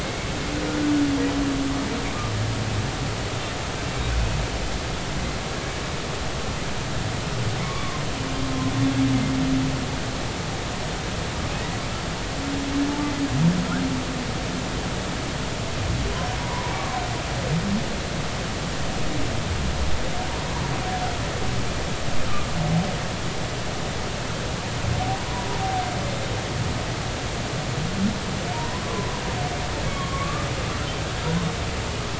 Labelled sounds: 0.0	0.3	humpback whale, 2.1 to 2.3 kHz
7.6	8.0	humpback whale, 0.99 to 1.2 kHz
16.4	17.0	humpback whale, 0.86 to 1.2 kHz
28.5	29.1	humpback whale, 0.90 to 1.2 kHz
29.9	30.5	humpback whale, 1.0 to 3.4 kHz

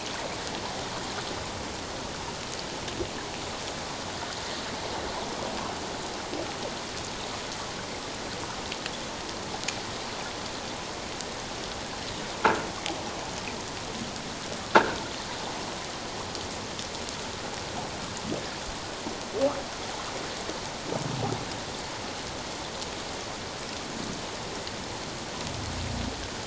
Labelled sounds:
14.7	15.0	croaking sound likely from a nearby submerged object, 1.3 to 1.7 kHz

